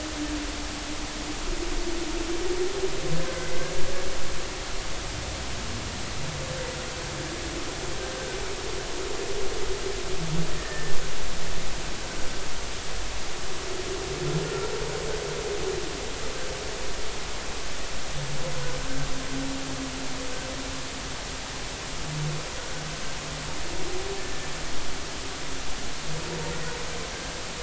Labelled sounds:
4.3	4.5	humpback whale, 1.5 to 1.6 kHz
10.6	11.0	humpback whale, 1.7 to 1.9 kHz
14.5	14.7	humpback whale, 1.3 to 1.4 kHz

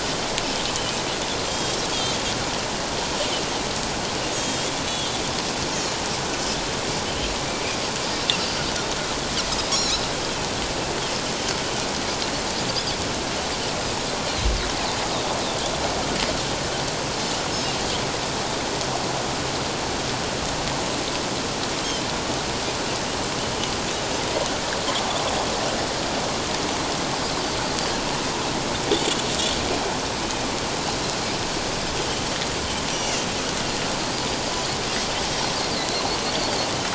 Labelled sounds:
1.5	1.8	Pacific white-sided dolphin, 3.1 to 7.5 kHz
4.4	5.2	Pacific white-sided dolphin, 3.1 to 7.4 kHz
32.0	33.2	Pacific white-sided dolphin, 2.9 to 6.0 kHz
35.7	36.0	Pacific white-sided dolphin, 3.9 to 4.4 kHz

